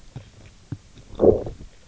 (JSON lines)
{"label": "biophony, low growl", "recorder": "SoundTrap 300"}